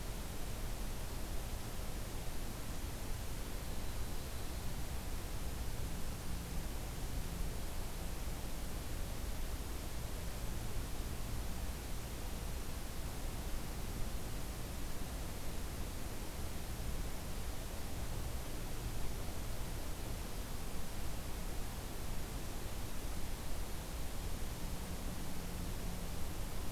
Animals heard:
forest ambience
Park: Acadia National Park